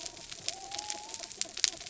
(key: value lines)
label: biophony
recorder: SoundTrap 300

label: anthrophony, mechanical
recorder: SoundTrap 300